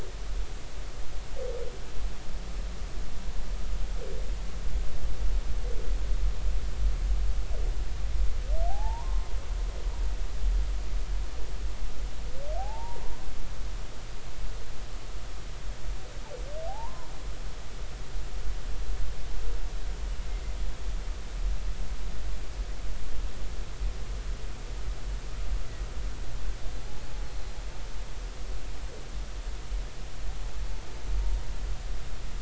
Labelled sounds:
8.7	9.3	humpback whale, 0.80 to 1.1 kHz
12.6	13.0	humpback whale, 0.80 to 0.99 kHz
16.7	17.1	humpback whale, 0.80 to 1.1 kHz

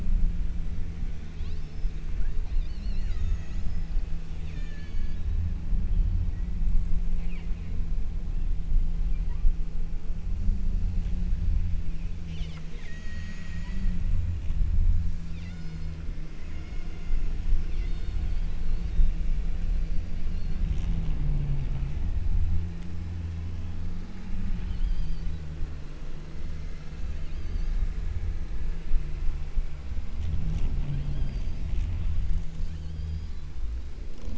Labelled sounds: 1.3	2.0	killer whale, southern Alaska resident, 2.1 to 6.5 kHz
2.4	4.0	killer whale, southern Alaska resident, 1.1 to 7.7 kHz
4.5	5.4	killer whale, southern Alaska resident, 1.1 to 7.3 kHz
7.2	7.9	killer whale, southern Alaska resident, 1.5 to 5.4 kHz
12.3	14.1	killer whale, southern Alaska resident, 1.5 to 8.0 kHz
15.3	16.2	killer whale, southern Alaska resident, 0.53 to 7.6 kHz
16.5	18.4	killer whale, southern Alaska resident, 0.51 to 5.5 kHz
18.7	19.4	killer whale, southern Alaska resident, 3.4 to 5.3 kHz
20.2	20.8	killer whale, southern Alaska resident, 2.6 to 4.5 kHz
24.8	25.5	killer whale, southern Alaska resident, 2.7 to 6.3 kHz
27.2	28.0	killer whale, southern Alaska resident, 2.9 to 6.6 kHz
31.1	31.9	killer whale, southern Alaska resident, 2.9 to 6.5 kHz
32.8	33.7	killer whale, southern Alaska resident, 2.7 to 7.2 kHz

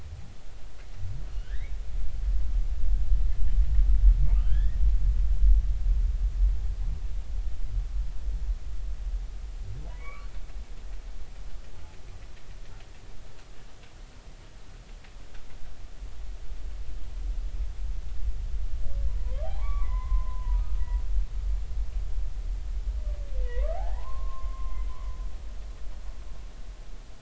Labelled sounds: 1.4	1.7	humpback whale, 1.4 to 2.4 kHz
4.4	4.8	humpback whale, 1.4 to 3.6 kHz
10.0	10.3	humpback whale, 0.96 to 2.5 kHz
19.1	20.8	humpback whale, 0.80 to 2.4 kHz
23.4	24.8	humpback whale, 0.80 to 2.4 kHz

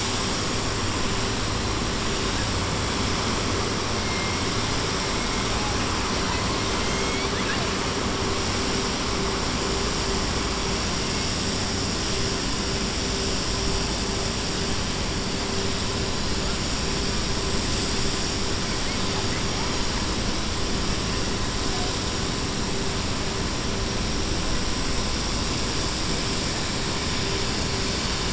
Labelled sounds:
6.7	7.6	killer whale, 0.71 to 4.1 kHz

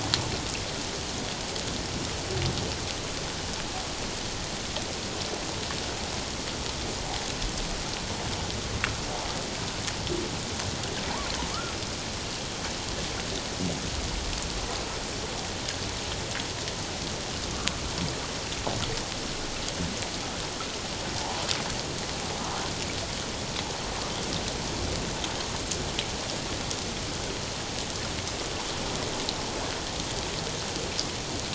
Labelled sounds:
21.2	21.4	water noise, 0.78 to 1.0 kHz

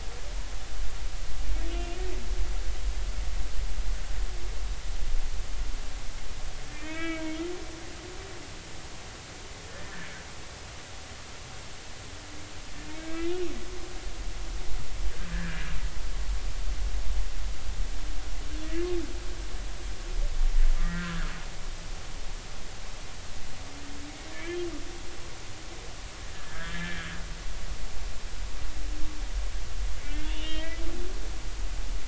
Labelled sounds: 1.7	2.0	humpback whale, 2.7 to 2.9 kHz
6.7	7.4	humpback whale, 1.2 to 3.0 kHz
9.7	10.1	humpback whale, 1.7 to 1.9 kHz
13.0	13.4	humpback whale, 1.5 to 2.6 kHz
15.2	15.6	humpback whale, 1.5 to 1.9 kHz
20.8	21.2	humpback whale, 1.3 to 2.0 kHz
24.3	24.6	humpback whale, 1.6 to 2.5 kHz
26.5	27.1	humpback whale, 1.5 to 1.9 kHz
30.0	30.8	humpback whale, 1.8 to 3.5 kHz

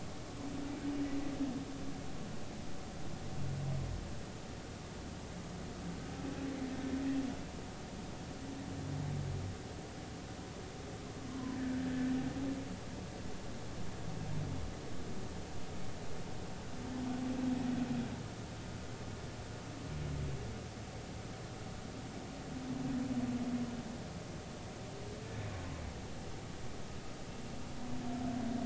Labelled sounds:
11.3	11.6	humpback whale, 0.96 to 1.1 kHz

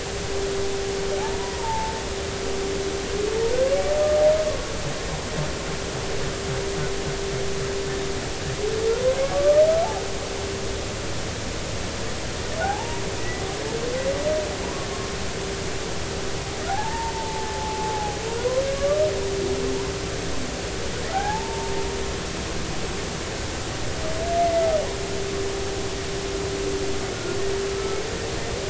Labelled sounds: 1.4	2.0	humpback whale, 0.83 to 1.1 kHz
9.2	9.6	humpback whale, 1.1 to 1.3 kHz
12.6	13.4	humpback whale, 0.80 to 2.0 kHz
16.7	19.0	humpback whale, 0.80 to 1.2 kHz
21.1	21.7	humpback whale, 0.80 to 1.8 kHz
24.4	24.7	humpback whale, 2.0 to 2.1 kHz
27.7	28.0	humpback whale, 1.28 to 1.34 kHz

